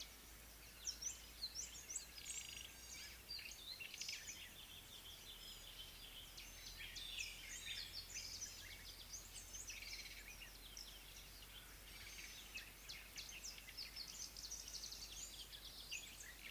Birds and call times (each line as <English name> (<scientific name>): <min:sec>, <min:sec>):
Amethyst Sunbird (Chalcomitra amethystina): 0:01.7
White-browed Sparrow-Weaver (Plocepasser mahali): 0:14.5